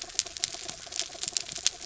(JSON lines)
{"label": "anthrophony, mechanical", "recorder": "SoundTrap 300"}